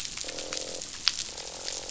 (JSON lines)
{"label": "biophony, croak", "recorder": "SoundTrap 500"}